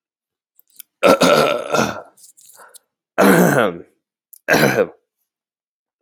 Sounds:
Throat clearing